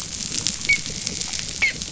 {"label": "biophony, dolphin", "recorder": "SoundTrap 500"}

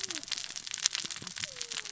{"label": "biophony, cascading saw", "recorder": "SoundTrap 600 or HydroMoth"}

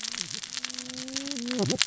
{"label": "biophony, cascading saw", "recorder": "SoundTrap 600 or HydroMoth"}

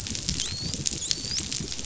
{"label": "biophony, dolphin", "recorder": "SoundTrap 500"}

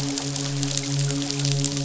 {"label": "biophony, midshipman", "recorder": "SoundTrap 500"}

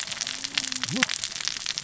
{"label": "biophony, cascading saw", "recorder": "SoundTrap 600 or HydroMoth"}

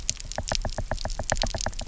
{"label": "biophony, knock", "recorder": "SoundTrap 300"}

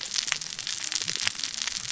{"label": "biophony, cascading saw", "recorder": "SoundTrap 600 or HydroMoth"}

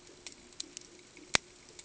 {"label": "ambient", "recorder": "HydroMoth"}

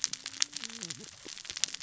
{"label": "biophony, cascading saw", "recorder": "SoundTrap 600 or HydroMoth"}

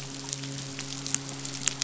{"label": "biophony, midshipman", "recorder": "SoundTrap 500"}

